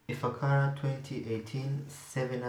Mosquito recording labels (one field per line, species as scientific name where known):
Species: Anopheles arabiensis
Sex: female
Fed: unfed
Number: one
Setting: cup